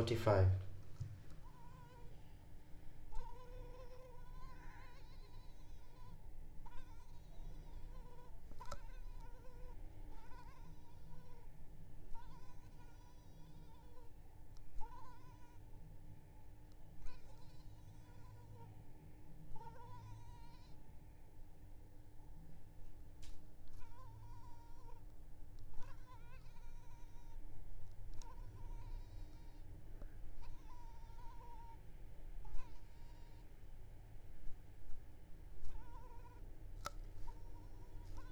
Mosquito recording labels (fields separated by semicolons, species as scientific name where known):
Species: Culex pipiens complex; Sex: female; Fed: unfed; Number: one; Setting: cup